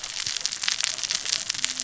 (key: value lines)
label: biophony, cascading saw
recorder: SoundTrap 600 or HydroMoth